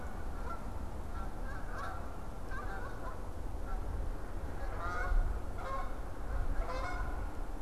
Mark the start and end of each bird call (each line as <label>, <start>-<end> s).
Canada Goose (Branta canadensis), 0.0-7.6 s